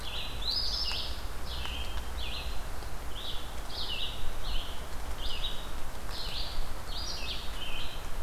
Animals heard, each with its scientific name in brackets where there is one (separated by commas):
Eastern Phoebe (Sayornis phoebe), Red-eyed Vireo (Vireo olivaceus)